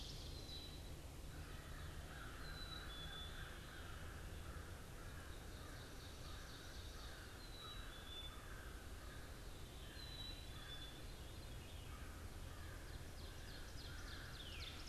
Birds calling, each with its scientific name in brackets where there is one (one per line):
Veery (Catharus fuscescens)
Ovenbird (Seiurus aurocapilla)
Black-capped Chickadee (Poecile atricapillus)
American Crow (Corvus brachyrhynchos)